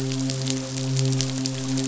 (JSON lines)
{"label": "biophony, midshipman", "recorder": "SoundTrap 500"}